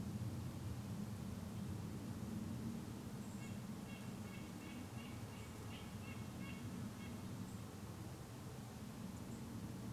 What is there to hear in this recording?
airplane, Red-breasted Nuthatch song, unidentified bird chip note